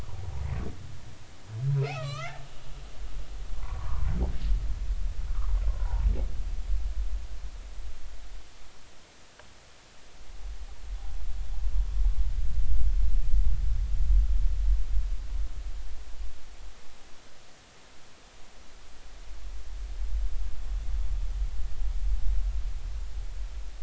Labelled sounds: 1.8	2.4	humpback whale, 1.1 to 6.3 kHz
3.5	4.1	humpback whale, 0.90 to 1.3 kHz
5.7	6.1	humpback whale, 0.80 to 1.1 kHz

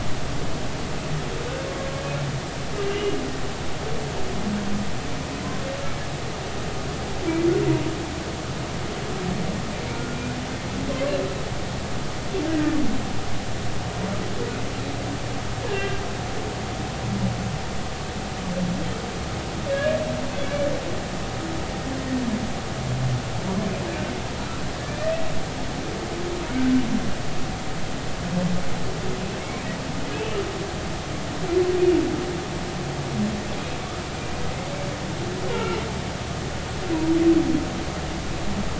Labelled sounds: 2.8	3.2	humpback whale, 2.7 to 3.0 kHz
9.9	10.2	humpback whale, 1.3 to 1.5 kHz
12.5	12.8	humpback whale, 1.7 to 2.0 kHz
15.7	16.0	humpback whale, 1.5 to 2.9 kHz
19.7	20.0	humpback whale, 1.6 to 2.9 kHz
29.4	29.7	humpback whale, 2.1 to 2.6 kHz
35.5	35.8	humpback whale, 1.3 to 1.5 kHz

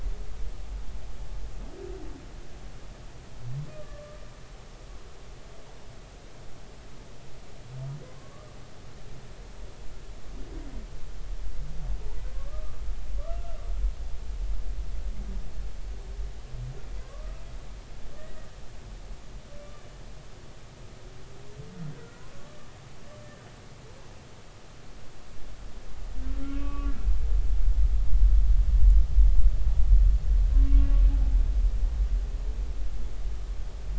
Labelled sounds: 3.7	4.2	humpback whale, 1.1 to 1.2 kHz
12.3	13.6	humpback whale, 1.1 to 1.4 kHz
17.0	17.4	humpback whale, 0.99 to 1.3 kHz
18.2	18.5	humpback whale, 1.8 to 2.0 kHz
22.0	22.7	humpback whale, 1.1 to 1.5 kHz
26.5	26.9	humpback whale, 1.1 to 2.6 kHz
30.5	31.0	humpback whale, 1.0 to 2.8 kHz

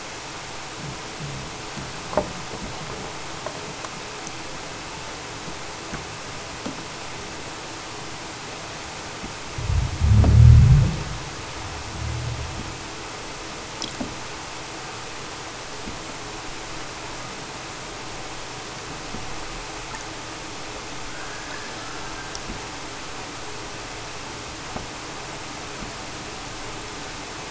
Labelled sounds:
21.0	22.3	killer whale, southern Alaska resident, 1.0 to 5.7 kHz

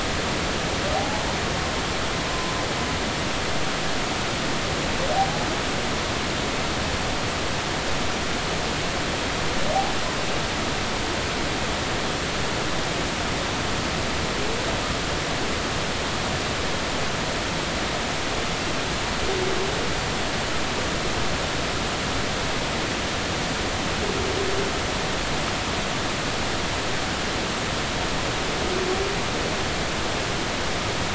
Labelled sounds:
0.9	1.2	humpback whale, 0.80 to 0.96 kHz
2.3	2.5	humpback whale, 0.96 to 1.1 kHz
5.1	5.5	humpback whale, 0.80 to 0.86 kHz

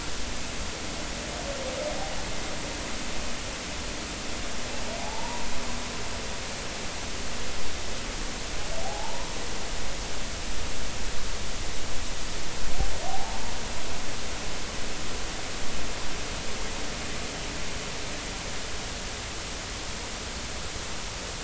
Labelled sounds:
5.0	5.4	humpback whale, 0.80 to 1.0 kHz
8.8	9.3	humpback whale, 0.80 to 1.1 kHz
13.1	13.4	humpback whale, 0.80 to 0.96 kHz

